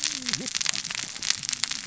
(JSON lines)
{"label": "biophony, cascading saw", "recorder": "SoundTrap 600 or HydroMoth"}